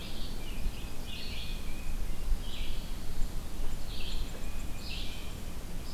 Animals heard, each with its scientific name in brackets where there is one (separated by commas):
Tufted Titmouse (Baeolophus bicolor), Red-eyed Vireo (Vireo olivaceus)